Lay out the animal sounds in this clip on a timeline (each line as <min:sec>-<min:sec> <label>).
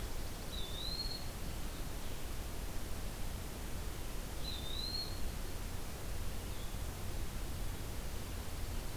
0:00.0-0:01.1 Dark-eyed Junco (Junco hyemalis)
0:00.0-0:09.0 Blue-headed Vireo (Vireo solitarius)
0:00.4-0:01.3 Eastern Wood-Pewee (Contopus virens)
0:04.4-0:05.3 Eastern Wood-Pewee (Contopus virens)